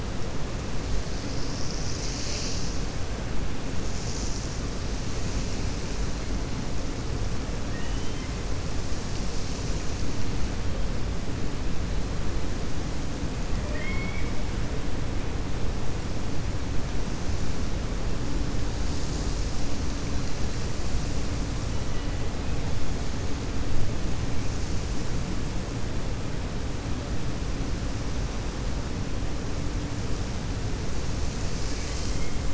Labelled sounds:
13.6	14.3	killer whale, 0.62 to 3.4 kHz

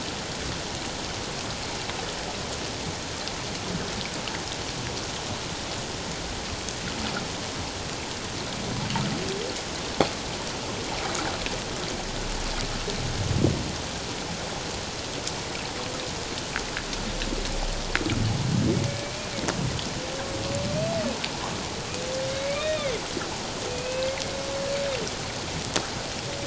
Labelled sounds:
18.9	19.1	humpback whale, 2.2 to 2.3 kHz
22.3	24.1	humpback whale, 2.0 to 3.8 kHz

